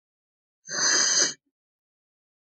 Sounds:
Sniff